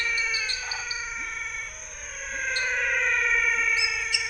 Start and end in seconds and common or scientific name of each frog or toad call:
0.0	1.3	dwarf tree frog
0.0	4.2	pepper frog
0.0	4.2	menwig frog
0.5	0.9	waxy monkey tree frog